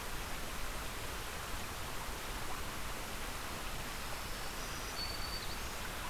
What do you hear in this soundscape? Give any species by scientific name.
Setophaga virens